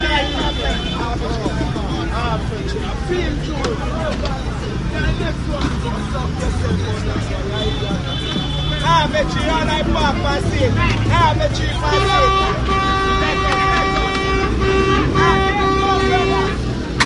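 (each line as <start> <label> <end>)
0.0 People talking on the street with overlapping voices and varying tones. 17.1
0.2 A car honks sharply and loudly. 1.2
1.2 Rhythmic drum sounds with varying intensity and tempo. 2.4
7.6 Rhythmic drum sounds with varying intensity and tempo. 11.4
7.7 A car honks sharply and loudly. 8.8
11.7 A car honks sharply and loudly. 16.6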